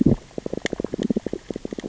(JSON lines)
{"label": "biophony, stridulation", "recorder": "SoundTrap 600 or HydroMoth"}